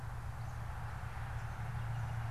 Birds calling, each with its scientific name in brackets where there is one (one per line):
Northern Flicker (Colaptes auratus)